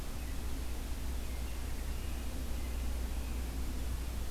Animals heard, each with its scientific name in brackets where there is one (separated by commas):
American Robin (Turdus migratorius)